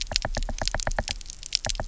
{"label": "biophony, knock", "recorder": "SoundTrap 300"}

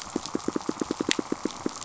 {"label": "biophony, pulse", "recorder": "SoundTrap 500"}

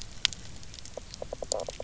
{"label": "biophony, knock croak", "recorder": "SoundTrap 300"}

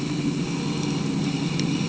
{"label": "anthrophony, boat engine", "recorder": "HydroMoth"}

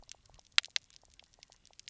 {"label": "biophony, knock croak", "recorder": "SoundTrap 300"}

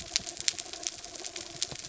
{"label": "anthrophony, boat engine", "recorder": "SoundTrap 300"}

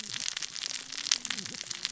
{"label": "biophony, cascading saw", "recorder": "SoundTrap 600 or HydroMoth"}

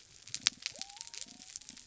{"label": "biophony", "recorder": "SoundTrap 300"}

